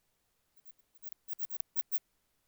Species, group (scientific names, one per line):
Odontura stenoxypha
Orthoptera